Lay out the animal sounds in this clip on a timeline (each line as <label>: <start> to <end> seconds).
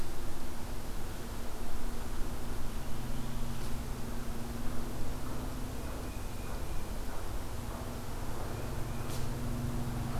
Tufted Titmouse (Baeolophus bicolor): 5.7 to 7.0 seconds
Tufted Titmouse (Baeolophus bicolor): 8.3 to 9.2 seconds